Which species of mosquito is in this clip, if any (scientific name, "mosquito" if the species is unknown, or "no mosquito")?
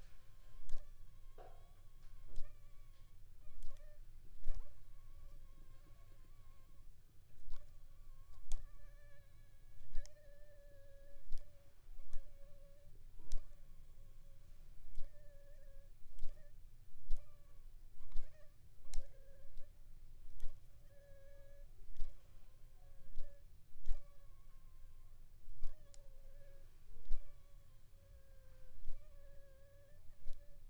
Anopheles gambiae s.l.